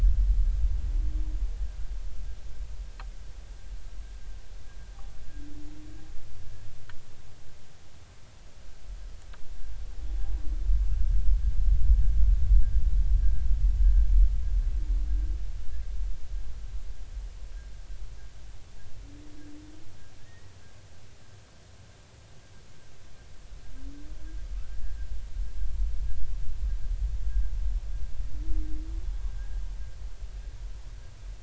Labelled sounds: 20.3	20.5	humpback whale, 1.8 to 2.0 kHz
24.7	25.0	humpback whale, 1.6 to 1.8 kHz
29.3	29.6	humpback whale, 1.5 to 1.7 kHz

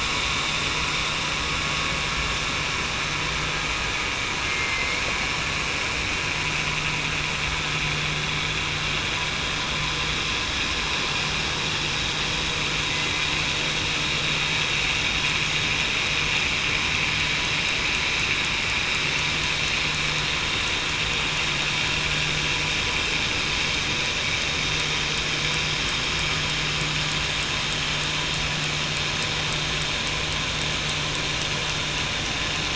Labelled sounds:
4.4	5.0	killer whale, southern resident, 2.1 to 2.3 kHz

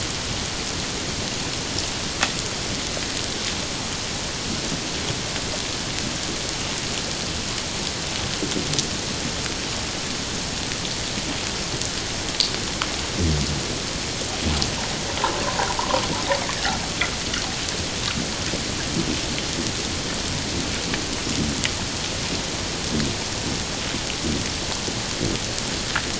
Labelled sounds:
15.4	15.8	humpback whale, 0.78 to 1.1 kHz

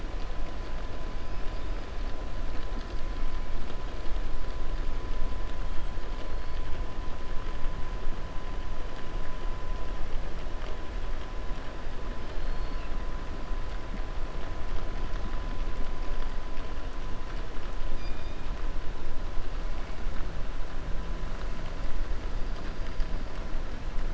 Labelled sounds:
12.2	12.9	killer whale, 2.2 to 4.9 kHz
17.9	18.4	killer whale, 2.4 to 5.0 kHz

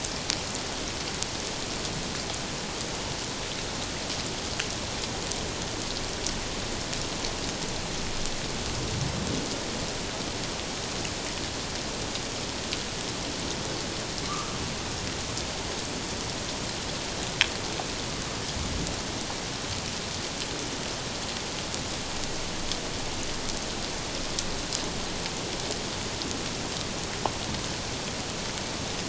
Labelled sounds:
14.3	14.6	humpback whale, 1.1 to 1.3 kHz

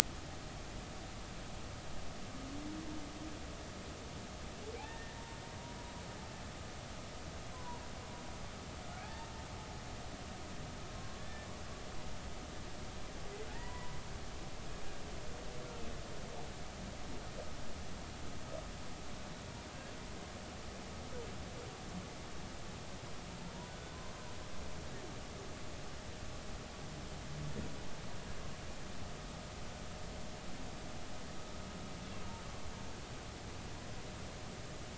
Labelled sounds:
4.8	5.9	humpback whale, 0.80 to 1.9 kHz
7.5	7.8	humpback whale, 0.90 to 1.1 kHz
9.0	9.3	humpback whale, 0.80 to 0.96 kHz
11.0	11.5	humpback whale, 1.0 to 1.8 kHz
13.5	14.0	humpback whale, 0.83 to 2.0 kHz

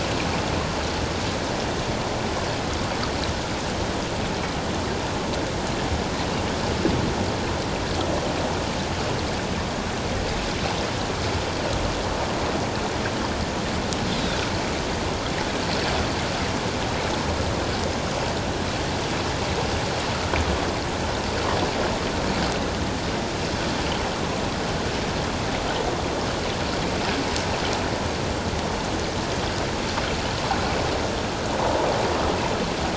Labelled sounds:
14.1	14.4	Pacific white-sided dolphin, 3.4 to 4.2 kHz
31.6	31.9	water noise, 0.84 to 1.0 kHz

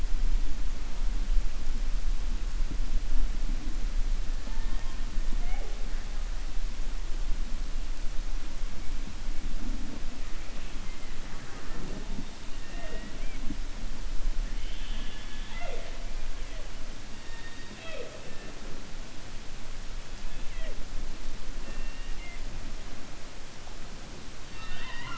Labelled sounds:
14.5	15.9	killer whale, 0.48 to 4.3 kHz

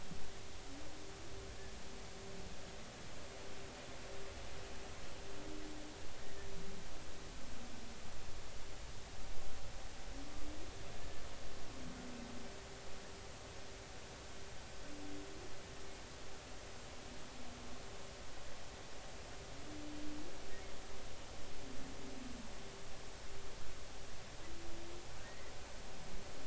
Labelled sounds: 6.2	6.5	humpback whale, 1.7 to 2.0 kHz
25.2	25.5	humpback whale, 1.8 to 2.1 kHz

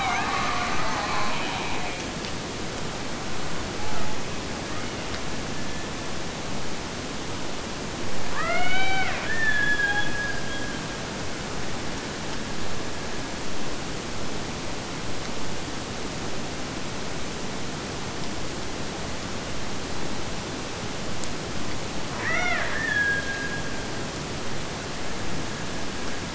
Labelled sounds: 4.5	6.2	killer whale, Bigg's (transient), Gulf of Alaska transient, 0.91 to 3.2 kHz
8.3	11.0	killer whale, Bigg's (transient), Gulf of Alaska transient, 0.29 to 4.6 kHz
22.1	26.3	killer whale, Bigg's (transient), Gulf of Alaska transient, 0.33 to 3.7 kHz

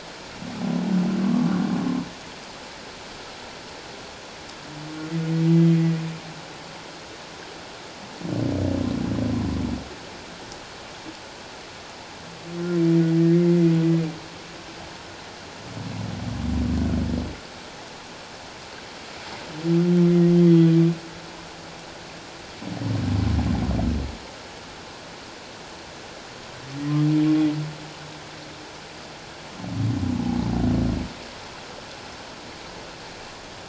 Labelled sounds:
1.2	1.5	humpback whale, 1.0 to 1.2 kHz
13.3	13.7	humpback whale, 1.9 to 2.2 kHz
20.4	20.7	humpback whale, 1.9 to 2.1 kHz

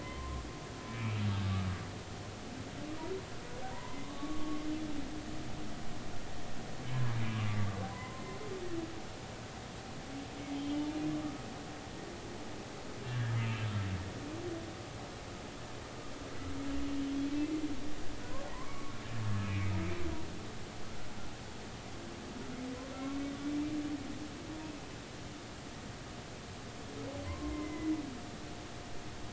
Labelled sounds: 0.0	1.2	humpback whale, 0.96 to 2.7 kHz
3.7	4.6	humpback whale, 0.90 to 2.1 kHz
7.9	8.2	humpback whale, 0.96 to 1.1 kHz
10.5	10.9	humpback whale, 2.8 to 3.2 kHz
11.2	11.5	humpback whale, 1.1 to 1.4 kHz
13.0	13.7	humpback whale, 1.5 to 2.8 kHz
18.5	19.0	humpback whale, 0.93 to 1.2 kHz
19.4	19.7	humpback whale, 2.0 to 2.7 kHz
27.3	28.0	humpback whale, 0.86 to 2.2 kHz

